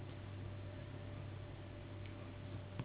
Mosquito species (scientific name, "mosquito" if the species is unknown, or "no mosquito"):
Anopheles gambiae s.s.